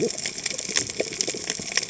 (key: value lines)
label: biophony, cascading saw
recorder: HydroMoth